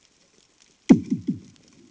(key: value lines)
label: anthrophony, bomb
recorder: HydroMoth